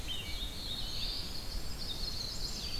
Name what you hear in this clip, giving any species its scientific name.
Pheucticus ludovicianus, Setophaga caerulescens, Troglodytes hiemalis, Setophaga pensylvanica